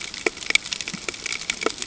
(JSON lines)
{"label": "ambient", "recorder": "HydroMoth"}